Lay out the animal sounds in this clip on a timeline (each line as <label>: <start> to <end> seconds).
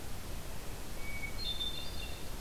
Hermit Thrush (Catharus guttatus): 0.9 to 2.3 seconds